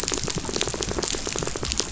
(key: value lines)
label: biophony, rattle
recorder: SoundTrap 500